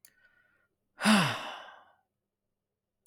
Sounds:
Sigh